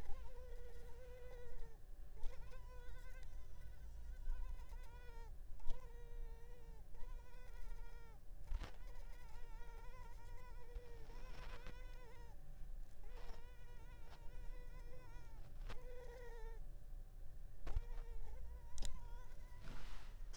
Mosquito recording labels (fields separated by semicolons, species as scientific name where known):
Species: Culex pipiens complex; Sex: female; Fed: unfed; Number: one; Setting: cup